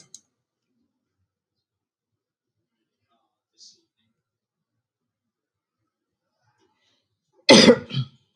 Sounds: Cough